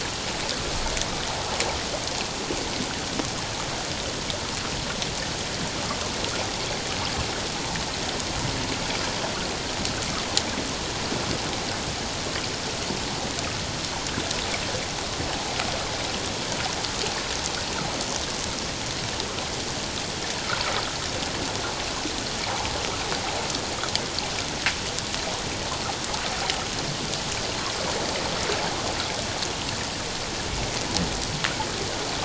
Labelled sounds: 22.5	22.7	water noise, 0.78 to 1.1 kHz

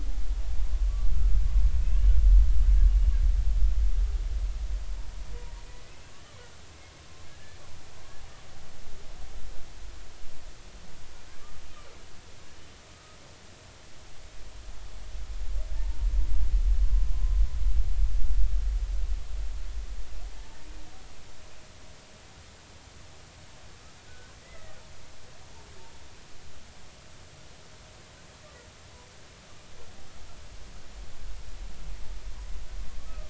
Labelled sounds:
1.8	2.1	humpback whale, 2.5 to 2.9 kHz
5.9	6.1	humpback whale, 2.5 to 2.7 kHz
7.3	7.6	humpback whale, 1.6 to 1.8 kHz
12.9	13.2	humpback whale, 1.2 to 1.3 kHz
15.7	16.1	humpback whale, 0.86 to 0.96 kHz
24.1	24.8	humpback whale, 1.4 to 2.1 kHz
33.0	33.2	humpback whale, 1.2 to 1.3 kHz

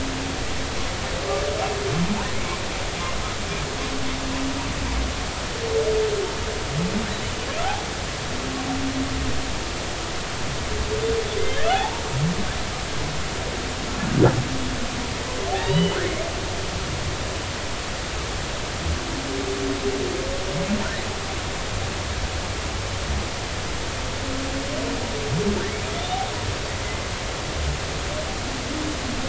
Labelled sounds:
7.6	7.9	humpback whale, 0.80 to 0.90 kHz
11.7	12.0	humpback whale, 0.80 to 0.96 kHz
15.5	16.0	humpback whale, 0.80 to 3.0 kHz
25.9	26.2	humpback whale, 3.3 to 3.7 kHz
26.8	27.1	humpback whale, 2.0 to 2.1 kHz

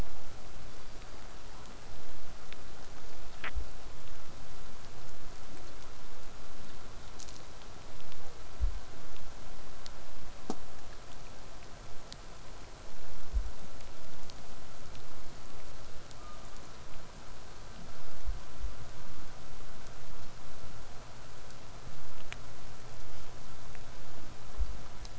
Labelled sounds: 0.6	1.5	killer whale, southern resident, call S16, 3.3 to 4.9 kHz
16.2	16.8	killer whale, southern resident, call S16, 1.0 to 1.4 kHz

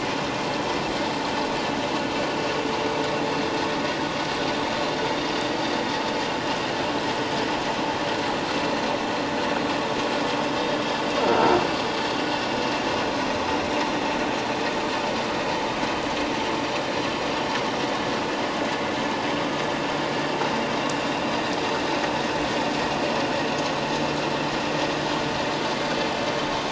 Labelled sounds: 11.2	11.6	croaking sound likely from a nearby submerged object, 1.3 to 1.4 kHz

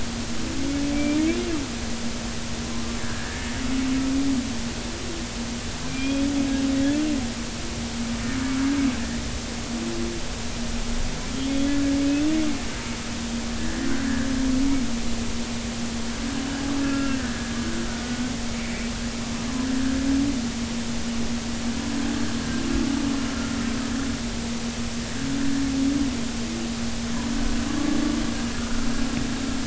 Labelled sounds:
0.9	1.6	humpback whale, 2.3 to 2.9 kHz
3.0	3.5	humpback whale, 1.5 to 1.8 kHz
5.9	6.3	humpback whale, 2.3 to 3.4 kHz
11.3	12.0	humpback whale, 1.6 to 3.5 kHz
14.6	14.9	humpback whale, 1.6 to 2.0 kHz
16.8	17.3	humpback whale, 1.3 to 2.8 kHz
18.5	18.9	humpback whale, 2.1 to 2.5 kHz

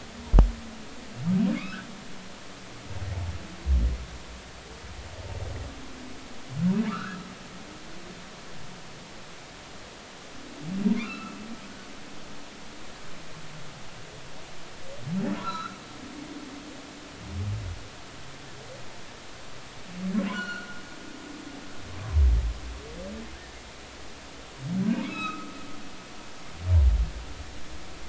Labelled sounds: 1.6	1.9	humpback whale, 1.1 to 2.8 kHz
6.9	7.2	humpback whale, 1.1 to 1.8 kHz
11.0	11.4	humpback whale, 1.2 to 2.8 kHz
15.4	15.8	humpback whale, 0.93 to 4.1 kHz
20.3	21.6	humpback whale, 1.3 to 4.4 kHz
24.3	25.5	humpback whale, 1.2 to 4.0 kHz

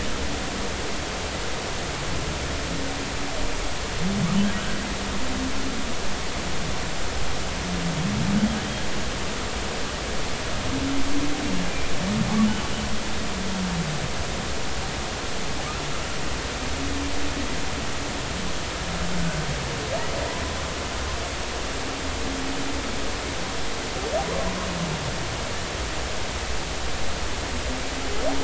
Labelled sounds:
19.2	19.5	humpback whale, 1.4 to 1.6 kHz

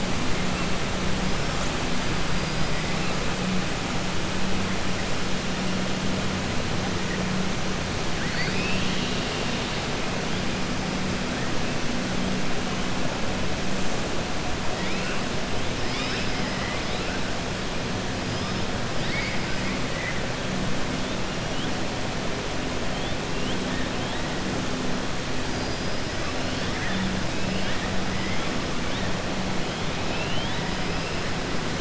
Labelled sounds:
8.1	9.8	killer whale, 1.5 to 5.4 kHz
16.5	17.0	killer whale, 1.1 to 4.1 kHz
18.9	19.4	killer whale, 1.8 to 4.9 kHz
25.4	26.0	killer whale, 4.7 to 5.1 kHz
30.0	30.6	killer whale, 2.5 to 4.1 kHz

